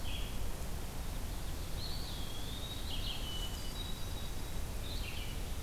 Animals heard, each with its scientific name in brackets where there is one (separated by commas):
Ovenbird (Seiurus aurocapilla), Hermit Thrush (Catharus guttatus), Red-eyed Vireo (Vireo olivaceus), Eastern Wood-Pewee (Contopus virens)